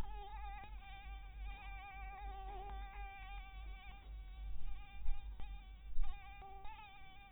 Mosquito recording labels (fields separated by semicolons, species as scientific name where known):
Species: Anopheles barbirostris; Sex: female; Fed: blood-fed; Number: one; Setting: cup